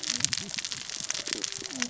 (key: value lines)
label: biophony, cascading saw
recorder: SoundTrap 600 or HydroMoth